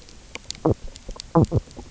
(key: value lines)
label: biophony, knock croak
recorder: SoundTrap 300